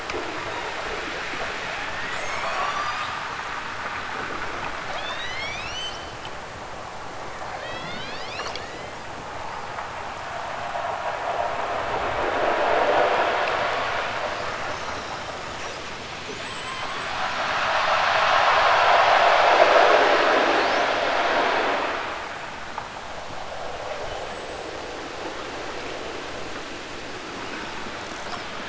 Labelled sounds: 0.4	1.2	killer whale, southern Alaska resident, 2.6 to 4.5 kHz
1.8	3.6	killer whale, southern Alaska resident, 1.4 to 8.0 kHz
4.9	6.2	killer whale, southern Alaska resident, 1.1 to 8.0 kHz
7.5	9.1	killer whale, southern Alaska resident, 0.92 to 7.6 kHz

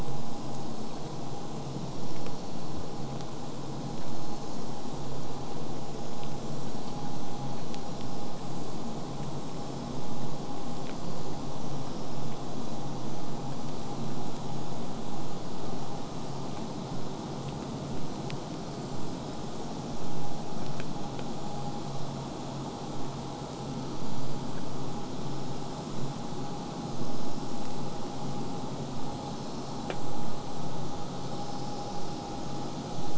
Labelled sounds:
17.4	21.1	killer whale, southern resident, J pod, 7.0 to 8.0 kHz

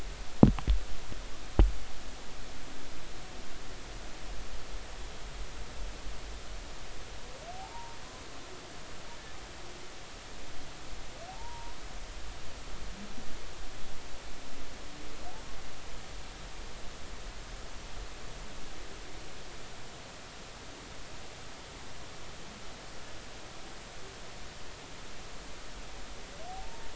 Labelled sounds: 7.6	8.0	humpback whale, 0.80 to 1.0 kHz
11.3	11.8	humpback whale, 0.80 to 1.1 kHz
26.5	26.9	humpback whale, 0.80 to 0.99 kHz

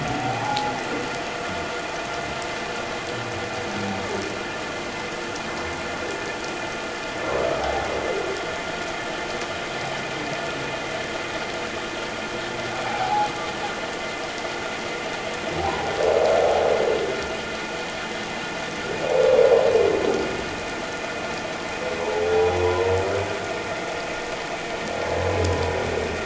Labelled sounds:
0.2	0.7	humpback whale, 0.78 to 1.1 kHz
7.6	7.9	humpback whale, 0.78 to 0.88 kHz
12.8	13.3	humpback whale, 0.78 to 0.91 kHz
22.3	22.6	humpback whale, 0.78 to 0.84 kHz

